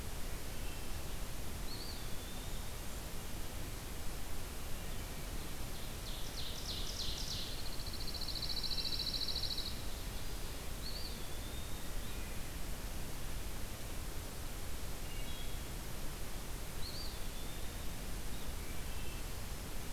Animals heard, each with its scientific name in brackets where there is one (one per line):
Eastern Wood-Pewee (Contopus virens)
Wood Thrush (Hylocichla mustelina)
Pine Warbler (Setophaga pinus)
Ovenbird (Seiurus aurocapilla)